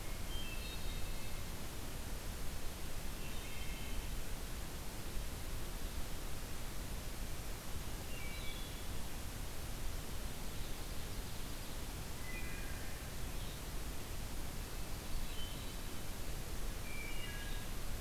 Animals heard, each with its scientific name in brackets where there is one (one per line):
Hermit Thrush (Catharus guttatus)
Red-eyed Vireo (Vireo olivaceus)
Wood Thrush (Hylocichla mustelina)
Ovenbird (Seiurus aurocapilla)